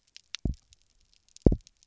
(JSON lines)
{"label": "biophony, double pulse", "recorder": "SoundTrap 300"}